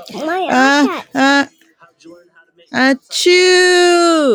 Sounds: Sneeze